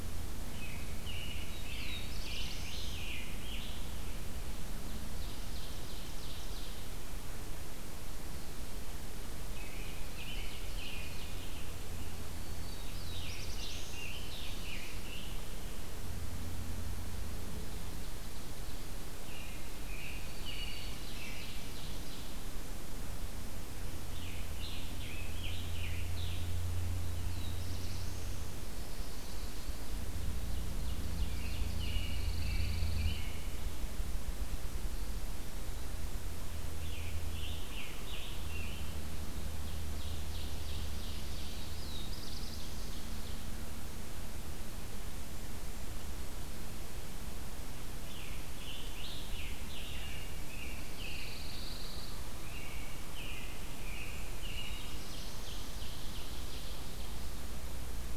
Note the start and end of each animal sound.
0.2s-2.1s: American Robin (Turdus migratorius)
1.4s-3.0s: Black-throated Blue Warbler (Setophaga caerulescens)
2.1s-3.9s: Scarlet Tanager (Piranga olivacea)
4.9s-6.9s: Ovenbird (Seiurus aurocapilla)
9.2s-11.5s: Ovenbird (Seiurus aurocapilla)
9.5s-11.2s: American Robin (Turdus migratorius)
12.5s-14.1s: Black-throated Blue Warbler (Setophaga caerulescens)
13.1s-15.3s: Scarlet Tanager (Piranga olivacea)
19.1s-21.5s: American Robin (Turdus migratorius)
20.0s-21.3s: Black-throated Green Warbler (Setophaga virens)
20.6s-22.3s: Ovenbird (Seiurus aurocapilla)
24.1s-26.5s: Scarlet Tanager (Piranga olivacea)
27.2s-28.4s: Black-throated Blue Warbler (Setophaga caerulescens)
30.3s-32.1s: Ovenbird (Seiurus aurocapilla)
31.3s-33.4s: American Robin (Turdus migratorius)
31.5s-33.3s: Pine Warbler (Setophaga pinus)
36.6s-38.9s: Scarlet Tanager (Piranga olivacea)
39.5s-43.5s: Ovenbird (Seiurus aurocapilla)
41.7s-42.9s: Black-throated Blue Warbler (Setophaga caerulescens)
48.0s-49.9s: Scarlet Tanager (Piranga olivacea)
49.9s-51.6s: American Robin (Turdus migratorius)
50.7s-52.2s: Pine Warbler (Setophaga pinus)
52.4s-55.1s: American Robin (Turdus migratorius)
54.3s-55.7s: Black-throated Blue Warbler (Setophaga caerulescens)
55.4s-56.8s: Ovenbird (Seiurus aurocapilla)

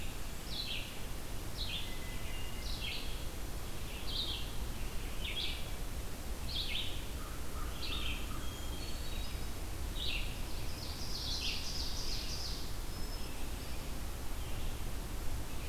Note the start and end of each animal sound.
0.0s-4.6s: Red-eyed Vireo (Vireo olivaceus)
1.6s-3.0s: Hermit Thrush (Catharus guttatus)
5.1s-15.7s: Red-eyed Vireo (Vireo olivaceus)
7.0s-8.5s: American Crow (Corvus brachyrhynchos)
8.3s-9.6s: Hermit Thrush (Catharus guttatus)
10.6s-12.6s: Ovenbird (Seiurus aurocapilla)
12.8s-14.0s: Hermit Thrush (Catharus guttatus)

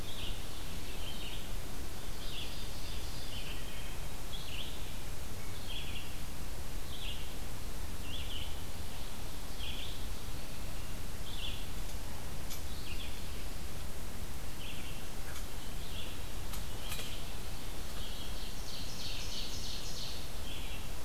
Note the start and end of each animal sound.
0.0s-21.0s: Red-eyed Vireo (Vireo olivaceus)
1.9s-3.4s: Ovenbird (Seiurus aurocapilla)
3.4s-4.2s: Wood Thrush (Hylocichla mustelina)
17.9s-20.4s: Ovenbird (Seiurus aurocapilla)

